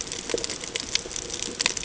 {"label": "ambient", "recorder": "HydroMoth"}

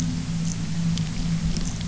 {"label": "anthrophony, boat engine", "recorder": "SoundTrap 300"}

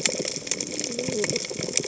{"label": "biophony, cascading saw", "recorder": "HydroMoth"}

